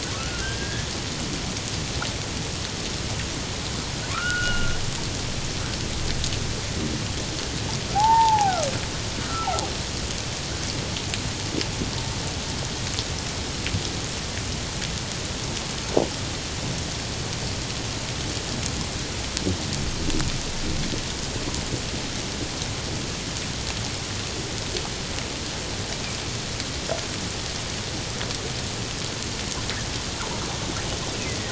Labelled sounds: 4.1	4.8	humpback whale, 1.0 to 3.0 kHz
7.9	9.5	humpback whale, 0.78 to 1.5 kHz

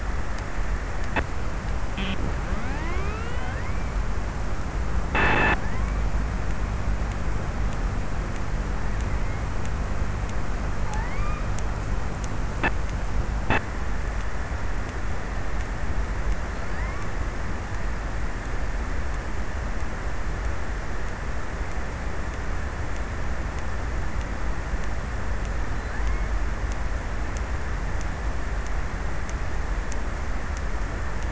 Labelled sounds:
10.5	11.8	killer whale, offshore, 0.53 to 2.8 kHz
16.4	17.9	killer whale, offshore, 0.55 to 2.8 kHz
25.2	27.1	killer whale, offshore, 0.49 to 2.4 kHz

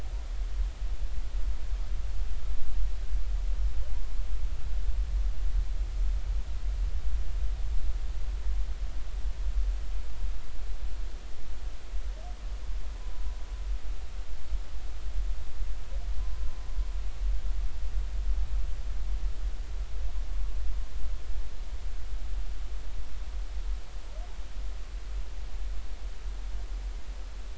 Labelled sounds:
13.0	13.2	humpback whale, 0.96 to 1.1 kHz

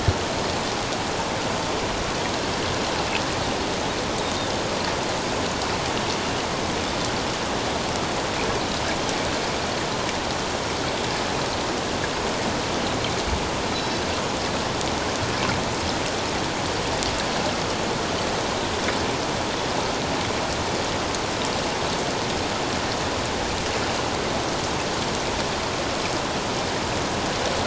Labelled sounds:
13.7	14.0	Pacific white-sided dolphin, 3.9 to 4.1 kHz

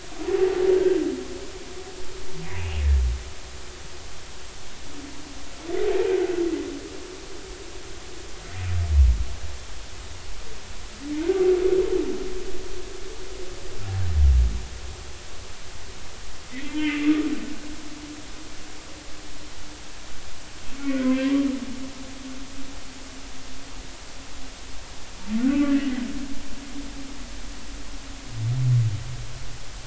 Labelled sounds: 2.6	2.8	humpback whale, 2.3 to 2.9 kHz
11.2	11.4	humpback whale, 1.4 to 1.6 kHz
16.5	17.1	humpback whale, 1.8 to 2.8 kHz
20.9	21.3	humpback whale, 1.9 to 2.2 kHz

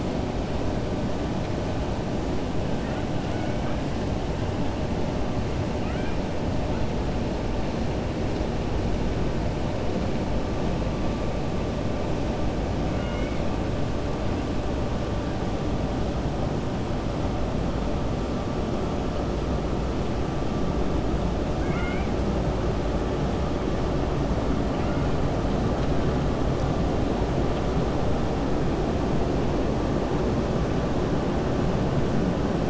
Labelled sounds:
5.7	6.2	killer whale, 1.2 to 3.2 kHz
12.9	13.4	killer whale, 1.4 to 3.0 kHz
21.5	22.1	killer whale, 1.3 to 3.5 kHz

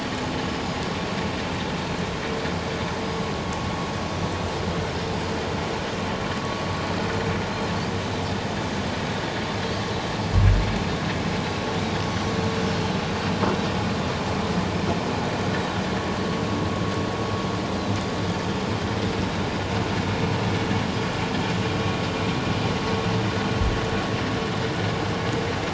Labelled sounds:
12.0	12.3	Pacific white-sided dolphin, 5.8 to 6.1 kHz

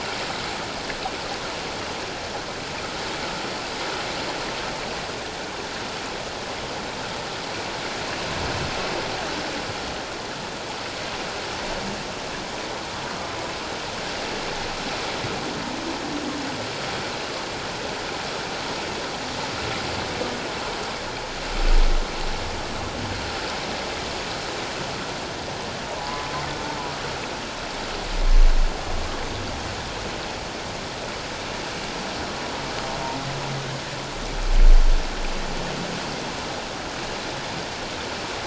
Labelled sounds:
26.0	26.3	humpback whale, 0.94 to 1.1 kHz

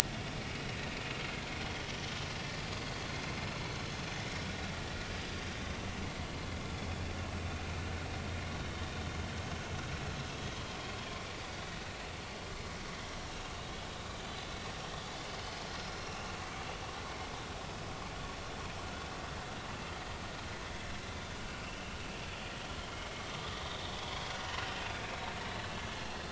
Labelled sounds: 16.0	16.3	vessel noise, 2.4 to 2.8 kHz
23.5	24.0	vessel noise, 3.4 to 3.8 kHz

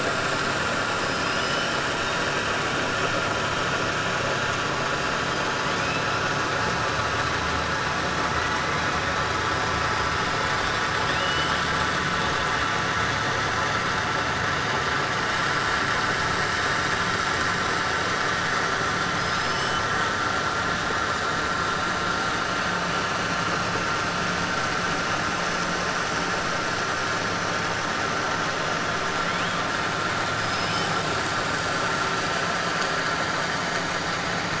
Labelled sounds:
1.0	1.7	killer whale, 2.8 to 6.0 kHz
10.9	11.7	killer whale, 2.2 to 5.2 kHz
30.3	31.0	killer whale, 4.5 to 6.3 kHz

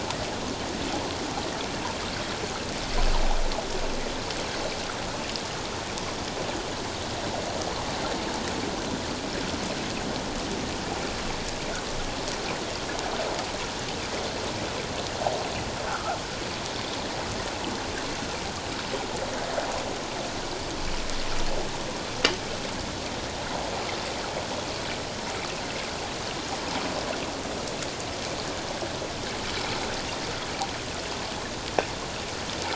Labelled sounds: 15.9	16.2	fish, 1.2 to 1.6 kHz

